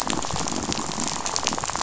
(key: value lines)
label: biophony, rattle
recorder: SoundTrap 500